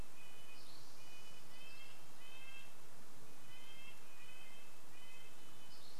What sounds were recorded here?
Spotted Towhee song, Red-breasted Nuthatch song